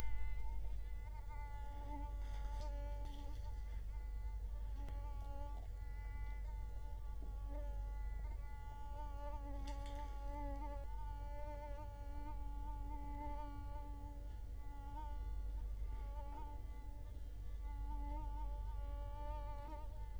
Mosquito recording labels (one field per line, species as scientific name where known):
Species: Culex quinquefasciatus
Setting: cup